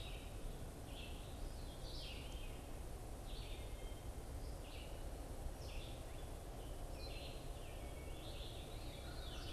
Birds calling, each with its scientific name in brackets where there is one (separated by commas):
Red-eyed Vireo (Vireo olivaceus), Veery (Catharus fuscescens), American Crow (Corvus brachyrhynchos)